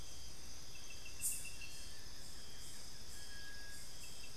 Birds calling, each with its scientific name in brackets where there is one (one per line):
Little Tinamou (Crypturellus soui)
Buff-throated Woodcreeper (Xiphorhynchus guttatus)